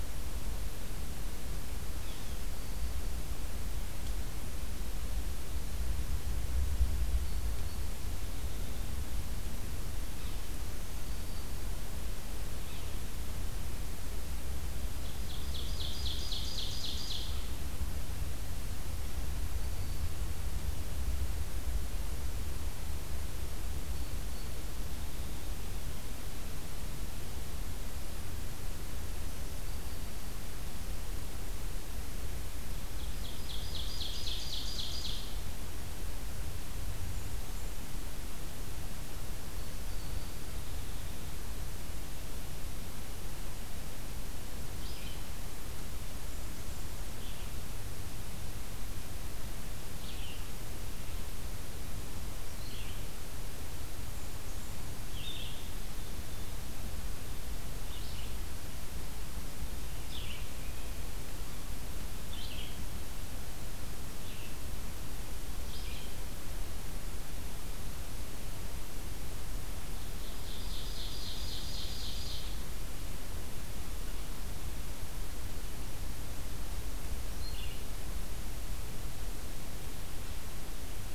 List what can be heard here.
Yellow-bellied Sapsucker, Ovenbird, Black-throated Green Warbler, Red-eyed Vireo